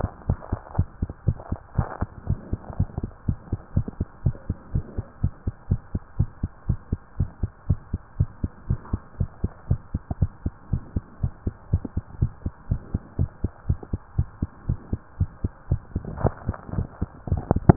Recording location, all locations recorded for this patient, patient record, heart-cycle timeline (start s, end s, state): mitral valve (MV)
aortic valve (AV)+pulmonary valve (PV)+tricuspid valve (TV)+mitral valve (MV)
#Age: Child
#Sex: Female
#Height: 120.0 cm
#Weight: 24.8 kg
#Pregnancy status: False
#Murmur: Absent
#Murmur locations: nan
#Most audible location: nan
#Systolic murmur timing: nan
#Systolic murmur shape: nan
#Systolic murmur grading: nan
#Systolic murmur pitch: nan
#Systolic murmur quality: nan
#Diastolic murmur timing: nan
#Diastolic murmur shape: nan
#Diastolic murmur grading: nan
#Diastolic murmur pitch: nan
#Diastolic murmur quality: nan
#Outcome: Normal
#Campaign: 2015 screening campaign
0.00	0.22	unannotated
0.22	0.36	S1
0.36	0.48	systole
0.48	0.62	S2
0.62	0.76	diastole
0.76	0.90	S1
0.90	0.98	systole
0.98	1.10	S2
1.10	1.24	diastole
1.24	1.38	S1
1.38	1.48	systole
1.48	1.58	S2
1.58	1.74	diastole
1.74	1.86	S1
1.86	1.98	systole
1.98	2.12	S2
2.12	2.26	diastole
2.26	2.38	S1
2.38	2.50	systole
2.50	2.60	S2
2.60	2.76	diastole
2.76	2.88	S1
2.88	2.98	systole
2.98	3.10	S2
3.10	3.26	diastole
3.26	3.38	S1
3.38	3.48	systole
3.48	3.60	S2
3.60	3.74	diastole
3.74	3.88	S1
3.88	3.98	systole
3.98	4.08	S2
4.08	4.24	diastole
4.24	4.38	S1
4.38	4.46	systole
4.46	4.56	S2
4.56	4.72	diastole
4.72	4.86	S1
4.86	4.96	systole
4.96	5.06	S2
5.06	5.22	diastole
5.22	5.32	S1
5.32	5.44	systole
5.44	5.54	S2
5.54	5.70	diastole
5.70	5.82	S1
5.82	5.92	systole
5.92	6.02	S2
6.02	6.18	diastole
6.18	6.32	S1
6.32	6.40	systole
6.40	6.50	S2
6.50	6.66	diastole
6.66	6.80	S1
6.80	6.90	systole
6.90	7.02	S2
7.02	7.18	diastole
7.18	7.32	S1
7.32	7.40	systole
7.40	7.50	S2
7.50	7.66	diastole
7.66	7.82	S1
7.82	7.90	systole
7.90	8.00	S2
8.00	8.16	diastole
8.16	8.32	S1
8.32	8.40	systole
8.40	8.52	S2
8.52	8.68	diastole
8.68	8.82	S1
8.82	8.90	systole
8.90	9.00	S2
9.00	9.18	diastole
9.18	9.28	S1
9.28	9.42	systole
9.42	9.52	S2
9.52	9.68	diastole
9.68	9.80	S1
9.80	9.92	systole
9.92	10.02	S2
10.02	10.16	diastole
10.16	10.30	S1
10.30	10.44	systole
10.44	10.54	S2
10.54	10.70	diastole
10.70	10.84	S1
10.84	10.94	systole
10.94	11.04	S2
11.04	11.22	diastole
11.22	11.32	S1
11.32	11.44	systole
11.44	11.54	S2
11.54	11.70	diastole
11.70	11.82	S1
11.82	11.94	systole
11.94	12.04	S2
12.04	12.20	diastole
12.20	12.34	S1
12.34	12.44	systole
12.44	12.54	S2
12.54	12.70	diastole
12.70	12.84	S1
12.84	12.92	systole
12.92	13.02	S2
13.02	13.18	diastole
13.18	13.30	S1
13.30	13.40	systole
13.40	13.52	S2
13.52	13.68	diastole
13.68	13.80	S1
13.80	13.92	systole
13.92	14.02	S2
14.02	14.16	diastole
14.16	14.28	S1
14.28	14.40	systole
14.40	14.52	S2
14.52	14.68	diastole
14.68	14.80	S1
14.80	14.92	systole
14.92	15.02	S2
15.02	15.18	diastole
15.18	15.30	S1
15.30	15.40	systole
15.40	15.52	S2
15.52	15.70	diastole
15.70	15.84	S1
15.84	15.94	systole
15.94	16.04	S2
16.04	16.18	diastole
16.18	16.34	S1
16.34	16.46	systole
16.46	16.58	S2
16.58	16.74	diastole
16.74	16.88	S1
16.88	17.76	unannotated